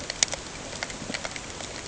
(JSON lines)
{"label": "ambient", "recorder": "HydroMoth"}